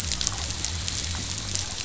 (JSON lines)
{"label": "biophony", "recorder": "SoundTrap 500"}